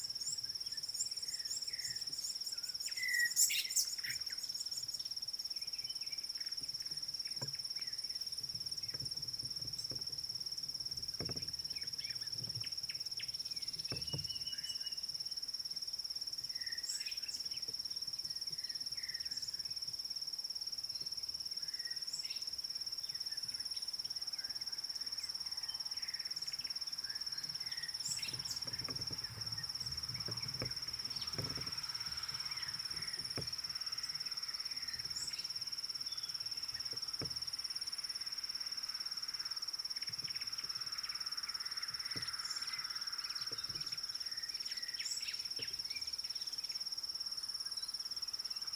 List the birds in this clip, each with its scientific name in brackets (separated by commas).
African Bare-eyed Thrush (Turdus tephronotus), Gray Wren-Warbler (Calamonastes simplex), White-browed Sparrow-Weaver (Plocepasser mahali), Red-cheeked Cordonbleu (Uraeginthus bengalus)